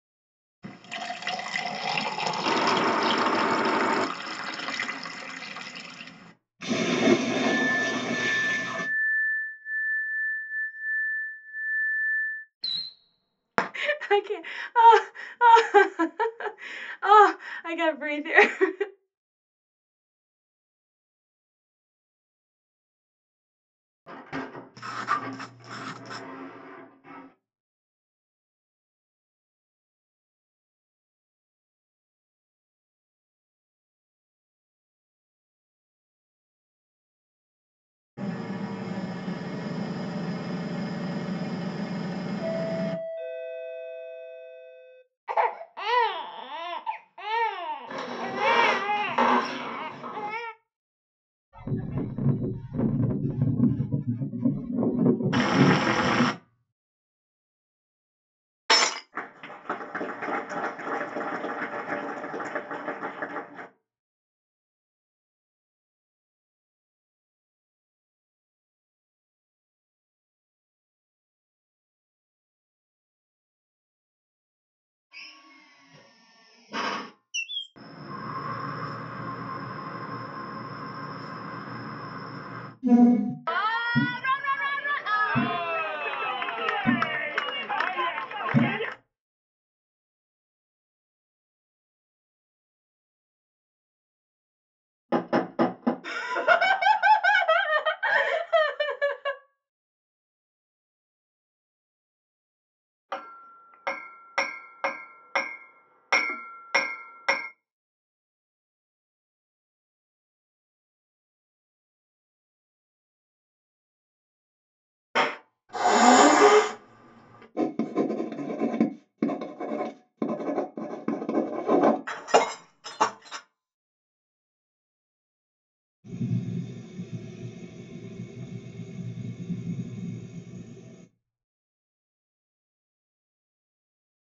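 At 0.62 seconds, the sound of filling with liquid begins. Over it, at 2.43 seconds, an engine can be heard. Next, at 6.58 seconds, there is splashing. Meanwhile, at 7.44 seconds, the sound of glass is heard. After that, at 12.6 seconds, fireworks are heard. Later, at 13.73 seconds, someone chuckles. Afterwards, at 24.06 seconds, a sliding door can be heard. As that goes on, at 24.73 seconds, there is writing. Later, at 38.2 seconds, an engine can be heard. Over it, at 42.4 seconds, there is the sound of a doorbell. Next, at 45.3 seconds, someone cries. Meanwhile, at 47.9 seconds, there is squeaking. Afterwards, at 51.5 seconds, wind is heard. As that goes on, at 55.3 seconds, cooking can be heard. At 58.69 seconds, glass shatters. After that, at 59.12 seconds, applause is heard. Next, at 75.1 seconds, you can hear a drill. Afterwards, at 77.33 seconds, bird vocalization is audible. Following that, at 77.75 seconds, the sound of wind comes through. 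At 82.82 seconds, you can hear metal furniture moving. At 83.44 seconds, cheering is heard. Over it, at 83.92 seconds, thumping is audible. Then at 95.09 seconds, knocking is heard. At 96.03 seconds, laughter is audible. Next, at 103.08 seconds, you can hear the sound of a hammer. At 115.14 seconds, there is clapping. Afterwards, at 115.68 seconds, hissing is audible. At 117.54 seconds, writing is heard. Following that, at 122.05 seconds, glass shatters. Finally, at 126.03 seconds, the sound of a bicycle is heard.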